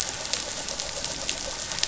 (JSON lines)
{"label": "anthrophony, boat engine", "recorder": "SoundTrap 500"}